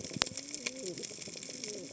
{"label": "biophony, cascading saw", "recorder": "HydroMoth"}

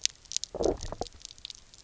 {"label": "biophony, low growl", "recorder": "SoundTrap 300"}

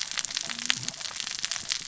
{"label": "biophony, cascading saw", "recorder": "SoundTrap 600 or HydroMoth"}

